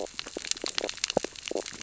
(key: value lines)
label: biophony, stridulation
recorder: SoundTrap 600 or HydroMoth